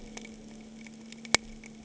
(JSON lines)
{"label": "anthrophony, boat engine", "recorder": "HydroMoth"}